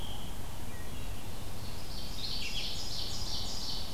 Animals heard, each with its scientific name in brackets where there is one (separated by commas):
Ovenbird (Seiurus aurocapilla), Red-eyed Vireo (Vireo olivaceus), Wood Thrush (Hylocichla mustelina)